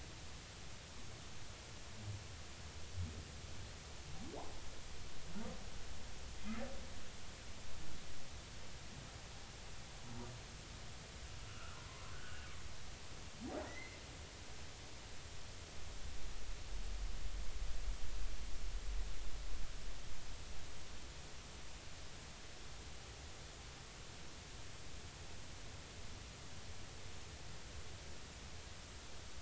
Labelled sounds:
11.5	11.8	humpback whale, 1.2 to 2.9 kHz
12.1	12.5	humpback whale, 1.4 to 1.7 kHz
13.6	14.0	humpback whale, 1.8 to 2.1 kHz

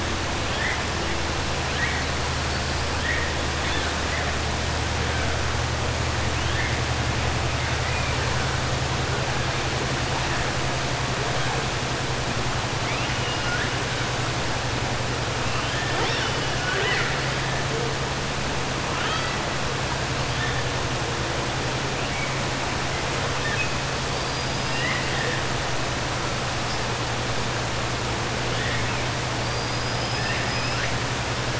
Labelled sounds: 12.8	13.7	killer whale, 1.4 to 3.0 kHz
16.5	17.2	killer whale, 0.40 to 4.8 kHz
24.6	25.4	killer whale, 1.2 to 3.9 kHz
29.4	30.9	killer whale, 1.4 to 6.0 kHz

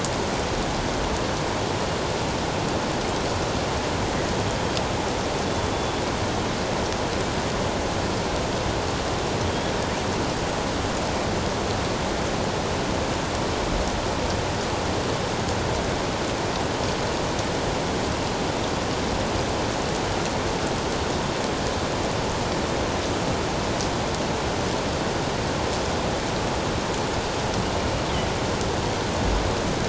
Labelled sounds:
5.5	5.7	killer whale, northern resident, G clan, 3.4 to 3.5 kHz
9.5	9.7	killer whale, northern resident, G clan, 3.2 to 3.5 kHz

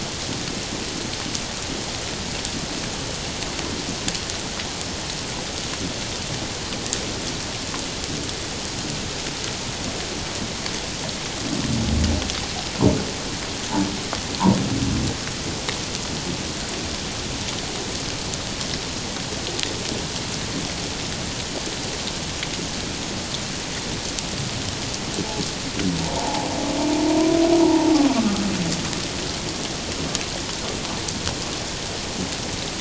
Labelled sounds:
26.0	26.5	humpback whale, 0.78 to 0.97 kHz
27.6	27.9	humpback whale, 0.84 to 1.0 kHz

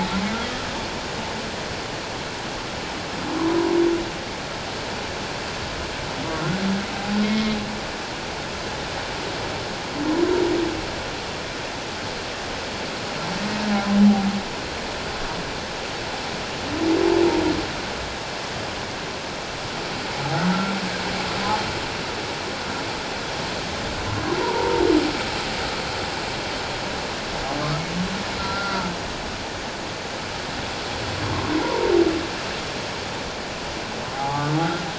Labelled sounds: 3.4	3.7	humpback whale, 0.91 to 1.1 kHz
7.2	7.6	humpback whale, 2.1 to 2.2 kHz
24.4	24.8	humpback whale, 0.84 to 1.0 kHz
28.4	28.9	humpback whale, 1.2 to 1.5 kHz
31.6	31.9	humpback whale, 0.78 to 1.1 kHz
34.1	34.4	humpback whale, 0.78 to 0.91 kHz

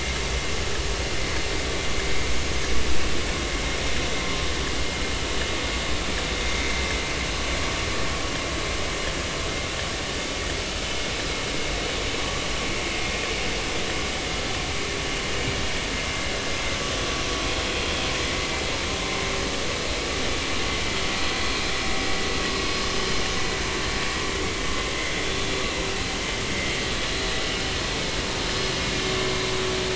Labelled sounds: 25.1	25.4	vessel noise, 3.3 to 3.6 kHz

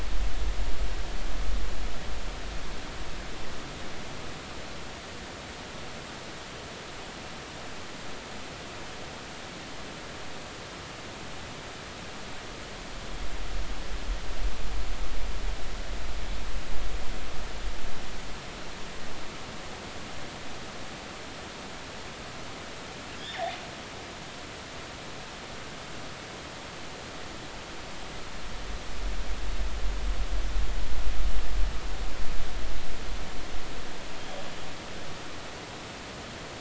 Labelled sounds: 23.2	23.5	killer whale, northern resident, G clan, GG subclan, call N28, 1.5 to 2.2 kHz

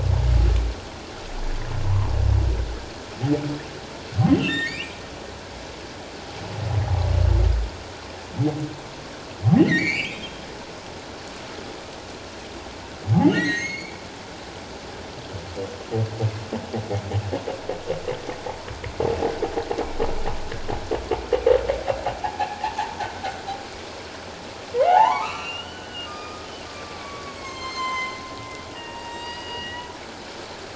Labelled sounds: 1.9	2.2	humpback whale, 0.88 to 1.2 kHz
4.3	5.0	humpback whale, 1.7 to 3.8 kHz
9.6	10.5	humpback whale, 1.8 to 7.1 kHz
13.3	14.0	humpback whale, 1.7 to 6.6 kHz
22.2	22.7	humpback whale, 0.78 to 2.8 kHz
24.7	28.2	humpback whale, 0.78 to 7.8 kHz
28.7	29.9	humpback whale, 0.88 to 7.7 kHz

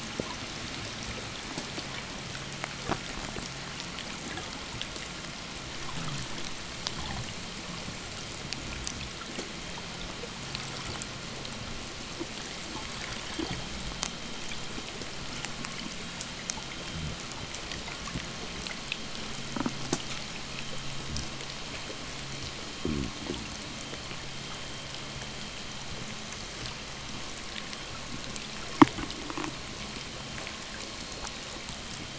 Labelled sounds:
22.5	23.8	fish, 0 to 0.69 kHz

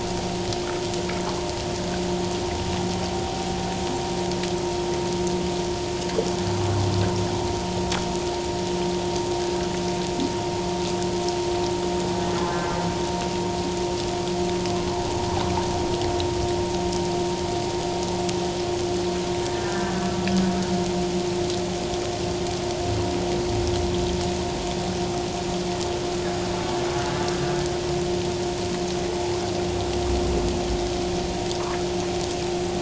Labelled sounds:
19.4	20.0	humpback whale, 1.5 to 1.9 kHz

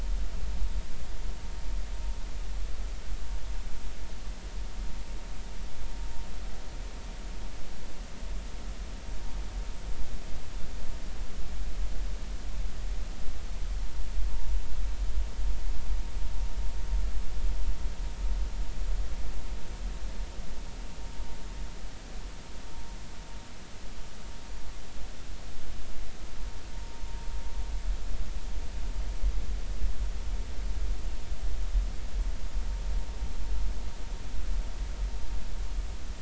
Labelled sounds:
26.7	27.0	vessel noise, 0.90 to 1.0 kHz

